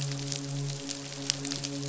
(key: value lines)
label: biophony, midshipman
recorder: SoundTrap 500